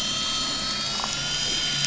{"label": "anthrophony, boat engine", "recorder": "SoundTrap 500"}
{"label": "biophony, damselfish", "recorder": "SoundTrap 500"}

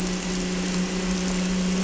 {"label": "anthrophony, boat engine", "recorder": "SoundTrap 300"}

